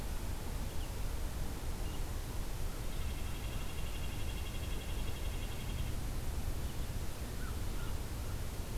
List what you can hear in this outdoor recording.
Red-breasted Nuthatch, American Crow